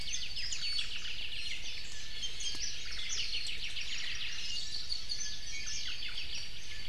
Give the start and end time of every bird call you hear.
[0.00, 1.60] Apapane (Himatione sanguinea)
[0.00, 1.60] Iiwi (Drepanis coccinea)
[0.50, 1.20] Omao (Myadestes obscurus)
[1.90, 2.60] Iiwi (Drepanis coccinea)
[2.40, 3.60] Warbling White-eye (Zosterops japonicus)
[2.80, 3.30] Omao (Myadestes obscurus)
[2.90, 6.40] Apapane (Himatione sanguinea)
[3.60, 4.50] Omao (Myadestes obscurus)

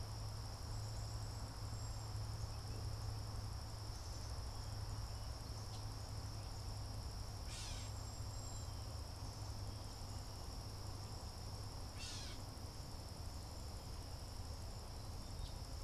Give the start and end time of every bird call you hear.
[0.00, 15.83] Black-capped Chickadee (Poecile atricapillus)
[1.06, 2.26] Cedar Waxwing (Bombycilla cedrorum)
[7.26, 8.96] Cedar Waxwing (Bombycilla cedrorum)
[7.36, 8.06] Gray Catbird (Dumetella carolinensis)
[11.86, 12.56] Gray Catbird (Dumetella carolinensis)

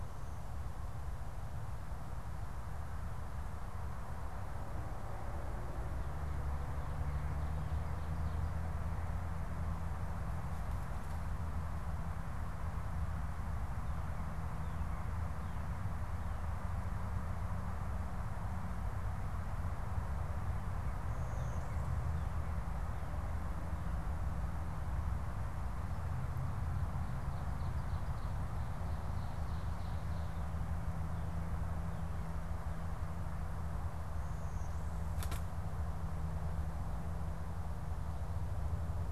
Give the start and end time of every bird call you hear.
[13.63, 16.93] Northern Cardinal (Cardinalis cardinalis)
[20.23, 23.34] Northern Cardinal (Cardinalis cardinalis)
[21.14, 22.34] Blue-winged Warbler (Vermivora cyanoptera)
[34.03, 35.23] Blue-winged Warbler (Vermivora cyanoptera)

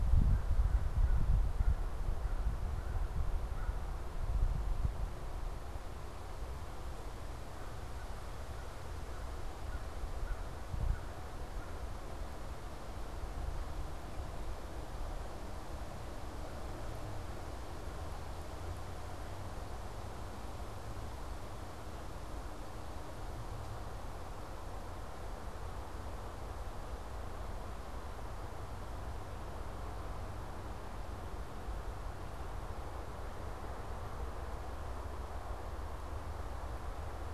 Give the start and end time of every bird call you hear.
[0.00, 3.80] American Crow (Corvus brachyrhynchos)
[7.70, 11.30] American Crow (Corvus brachyrhynchos)

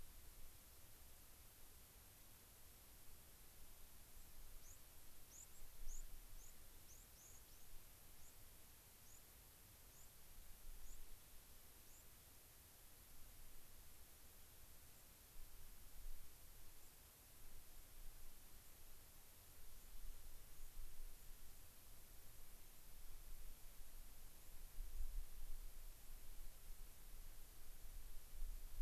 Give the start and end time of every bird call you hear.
[4.61, 4.81] White-crowned Sparrow (Zonotrichia leucophrys)
[5.21, 6.01] White-crowned Sparrow (Zonotrichia leucophrys)
[6.31, 6.61] White-crowned Sparrow (Zonotrichia leucophrys)
[6.91, 7.71] White-crowned Sparrow (Zonotrichia leucophrys)
[8.21, 8.41] White-crowned Sparrow (Zonotrichia leucophrys)
[9.01, 9.21] White-crowned Sparrow (Zonotrichia leucophrys)
[9.91, 10.11] White-crowned Sparrow (Zonotrichia leucophrys)
[10.81, 11.01] White-crowned Sparrow (Zonotrichia leucophrys)
[11.91, 12.01] White-crowned Sparrow (Zonotrichia leucophrys)

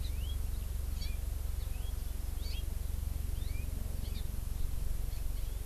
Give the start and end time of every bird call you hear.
[0.00, 0.40] House Finch (Haemorhous mexicanus)
[1.00, 1.20] Hawaii Amakihi (Chlorodrepanis virens)
[1.60, 1.90] House Finch (Haemorhous mexicanus)
[2.40, 2.60] Hawaii Amakihi (Chlorodrepanis virens)
[3.30, 3.60] Hawaii Amakihi (Chlorodrepanis virens)
[4.00, 4.20] Hawaii Amakihi (Chlorodrepanis virens)
[5.10, 5.20] Hawaii Amakihi (Chlorodrepanis virens)

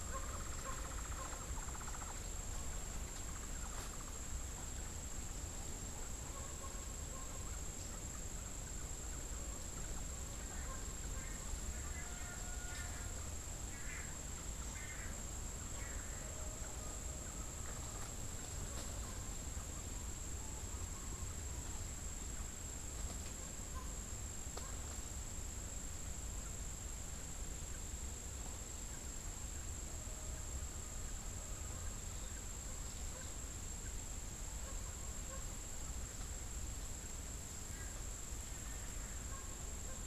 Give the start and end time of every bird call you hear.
[0.00, 4.50] Hoffmann's Woodpecker (Melanerpes hoffmannii)
[10.30, 13.30] Long-tailed Manakin (Chiroxiphia linearis)
[13.60, 15.40] Long-tailed Manakin (Chiroxiphia linearis)

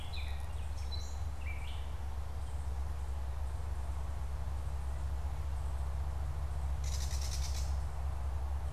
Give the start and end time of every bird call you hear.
[0.00, 1.95] Gray Catbird (Dumetella carolinensis)
[6.75, 7.85] Gray Catbird (Dumetella carolinensis)

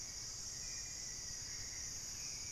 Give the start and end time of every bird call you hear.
[0.00, 2.08] Black-faced Antthrush (Formicarius analis)
[0.00, 2.52] Hauxwell's Thrush (Turdus hauxwelli)

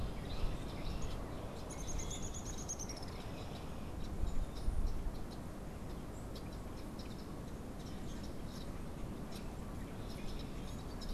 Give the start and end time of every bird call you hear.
[0.00, 11.13] Red-winged Blackbird (Agelaius phoeniceus)
[1.59, 2.99] Common Grackle (Quiscalus quiscula)
[1.59, 3.29] Downy Woodpecker (Dryobates pubescens)
[7.49, 8.59] Common Grackle (Quiscalus quiscula)

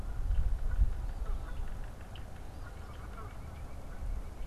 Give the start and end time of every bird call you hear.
[0.00, 4.47] Canada Goose (Branta canadensis)
[0.14, 2.64] Yellow-bellied Sapsucker (Sphyrapicus varius)
[2.44, 4.47] White-breasted Nuthatch (Sitta carolinensis)

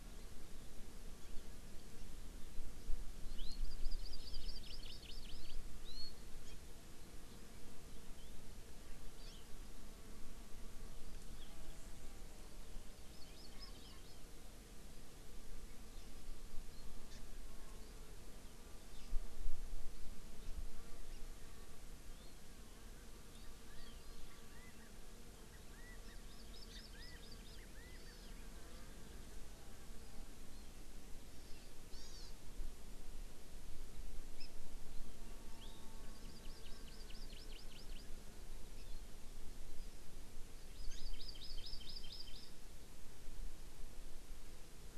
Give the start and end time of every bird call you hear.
[3.23, 5.53] Hawaii Amakihi (Chlorodrepanis virens)
[6.43, 6.53] Hawaii Amakihi (Chlorodrepanis virens)
[9.23, 9.43] Hawaii Amakihi (Chlorodrepanis virens)
[12.83, 14.23] Hawaii Amakihi (Chlorodrepanis virens)
[17.03, 17.23] Hawaii Amakihi (Chlorodrepanis virens)
[21.13, 21.23] Hawaii Amakihi (Chlorodrepanis virens)
[22.13, 22.33] Hawaii Amakihi (Chlorodrepanis virens)
[23.33, 24.03] Hawaii Amakihi (Chlorodrepanis virens)
[23.63, 23.93] Chinese Hwamei (Garrulax canorus)
[24.53, 24.93] Chinese Hwamei (Garrulax canorus)
[25.53, 25.93] Chinese Hwamei (Garrulax canorus)
[26.03, 27.63] Hawaii Amakihi (Chlorodrepanis virens)
[26.93, 27.23] Chinese Hwamei (Garrulax canorus)
[27.53, 28.13] Chinese Hwamei (Garrulax canorus)
[27.93, 28.33] Hawaii Amakihi (Chlorodrepanis virens)
[31.23, 32.33] Hawaii Amakihi (Chlorodrepanis virens)
[34.33, 34.43] Hawaii Amakihi (Chlorodrepanis virens)
[35.53, 38.03] Hawaii Amakihi (Chlorodrepanis virens)
[38.73, 39.03] Hawaii Amakihi (Chlorodrepanis virens)
[40.73, 42.53] Hawaii Amakihi (Chlorodrepanis virens)

